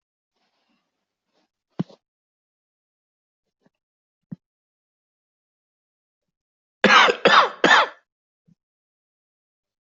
{"expert_labels": [{"quality": "ok", "cough_type": "dry", "dyspnea": false, "wheezing": false, "stridor": false, "choking": false, "congestion": false, "nothing": true, "diagnosis": "COVID-19", "severity": "mild"}]}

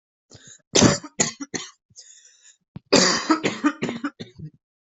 {"expert_labels": [{"quality": "ok", "cough_type": "wet", "dyspnea": false, "wheezing": false, "stridor": false, "choking": false, "congestion": false, "nothing": true, "diagnosis": "lower respiratory tract infection", "severity": "mild"}]}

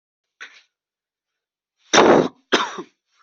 {"expert_labels": [{"quality": "poor", "cough_type": "dry", "dyspnea": false, "wheezing": false, "stridor": false, "choking": false, "congestion": false, "nothing": true, "diagnosis": "upper respiratory tract infection", "severity": "unknown"}], "age": 19, "gender": "male", "respiratory_condition": true, "fever_muscle_pain": false, "status": "COVID-19"}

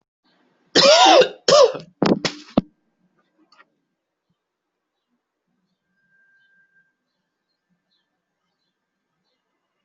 {"expert_labels": [{"quality": "ok", "cough_type": "dry", "dyspnea": false, "wheezing": false, "stridor": false, "choking": false, "congestion": false, "nothing": true, "diagnosis": "COVID-19", "severity": "mild"}], "age": 25, "gender": "male", "respiratory_condition": false, "fever_muscle_pain": false, "status": "COVID-19"}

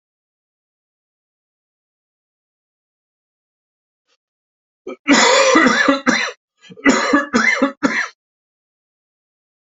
{"expert_labels": [{"quality": "good", "cough_type": "dry", "dyspnea": false, "wheezing": false, "stridor": false, "choking": false, "congestion": false, "nothing": true, "diagnosis": "lower respiratory tract infection", "severity": "mild"}], "age": 51, "gender": "male", "respiratory_condition": false, "fever_muscle_pain": true, "status": "COVID-19"}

